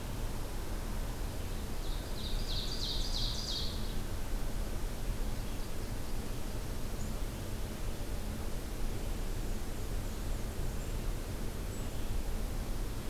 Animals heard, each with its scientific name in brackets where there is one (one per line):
Black-and-white Warbler (Mniotilta varia)
Ovenbird (Seiurus aurocapilla)